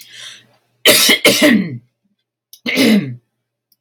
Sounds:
Throat clearing